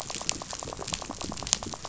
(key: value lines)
label: biophony, rattle
recorder: SoundTrap 500